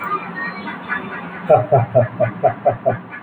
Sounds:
Laughter